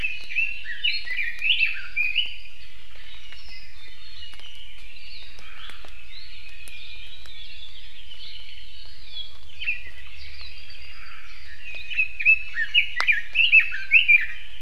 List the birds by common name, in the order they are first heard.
Red-billed Leiothrix, Iiwi, Apapane, Omao